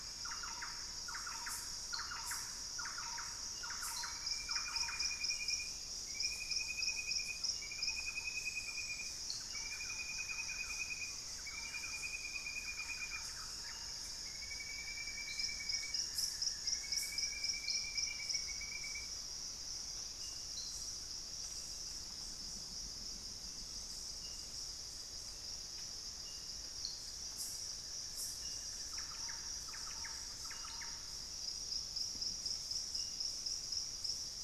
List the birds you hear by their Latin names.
Xiphorhynchus guttatus, Turdus hauxwelli, Campylorhynchus turdinus